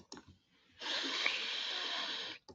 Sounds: Sniff